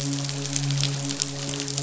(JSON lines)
{"label": "biophony, midshipman", "recorder": "SoundTrap 500"}